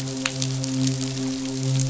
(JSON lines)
{"label": "biophony, midshipman", "recorder": "SoundTrap 500"}